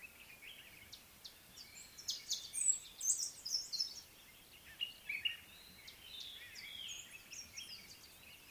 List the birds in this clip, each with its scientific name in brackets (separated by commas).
Amethyst Sunbird (Chalcomitra amethystina), Common Bulbul (Pycnonotus barbatus), White-browed Robin-Chat (Cossypha heuglini)